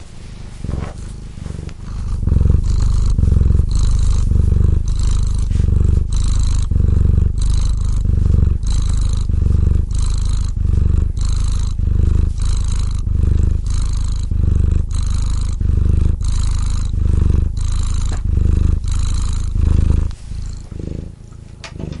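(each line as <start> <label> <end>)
0.0 A cat purrs softly in short bursts. 1.9
1.9 A cat is purring loudly and continuously in a uniform pattern. 20.2
20.2 A cat purrs softly in short bursts. 22.0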